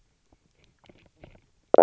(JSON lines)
{"label": "biophony, knock croak", "recorder": "SoundTrap 300"}